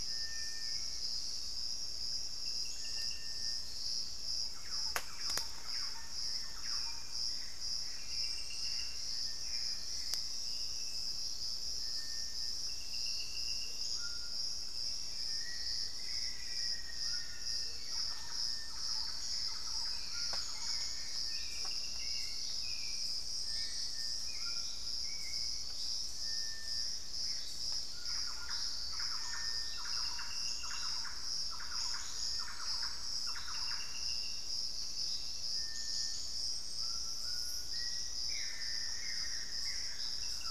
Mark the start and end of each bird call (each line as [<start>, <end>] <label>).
[0.00, 1.57] Hauxwell's Thrush (Turdus hauxwelli)
[0.00, 40.51] Little Tinamou (Crypturellus soui)
[4.37, 7.47] Thrush-like Wren (Campylorhynchus turdinus)
[4.67, 26.17] Hauxwell's Thrush (Turdus hauxwelli)
[6.87, 10.57] Gray Antbird (Cercomacra cinerascens)
[13.57, 18.37] Amazonian Motmot (Momotus momota)
[13.67, 17.57] White-throated Toucan (Ramphastos tucanus)
[14.57, 29.17] Gray Antbird (Cercomacra cinerascens)
[14.87, 17.77] Black-faced Antthrush (Formicarius analis)
[16.87, 21.97] Thrush-like Wren (Campylorhynchus turdinus)
[21.77, 23.27] Collared Trogon (Trogon collaris)
[24.27, 28.87] White-throated Toucan (Ramphastos tucanus)
[27.87, 34.37] Thrush-like Wren (Campylorhynchus turdinus)
[31.97, 32.87] unidentified bird
[36.57, 40.51] White-throated Toucan (Ramphastos tucanus)
[37.57, 39.77] Black-faced Antthrush (Formicarius analis)
[38.07, 40.51] Buff-throated Woodcreeper (Xiphorhynchus guttatus)
[39.57, 40.51] Thrush-like Wren (Campylorhynchus turdinus)